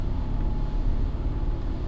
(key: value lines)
label: anthrophony, boat engine
recorder: SoundTrap 300